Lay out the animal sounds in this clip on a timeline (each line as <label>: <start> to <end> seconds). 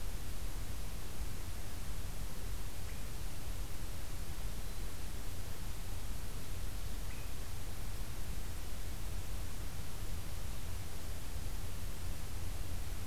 Swainson's Thrush (Catharus ustulatus): 2.7 to 3.1 seconds
Swainson's Thrush (Catharus ustulatus): 7.0 to 7.4 seconds